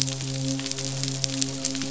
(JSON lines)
{"label": "biophony, midshipman", "recorder": "SoundTrap 500"}